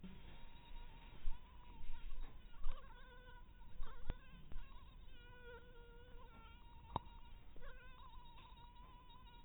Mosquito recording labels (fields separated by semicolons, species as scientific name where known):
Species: mosquito; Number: one; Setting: cup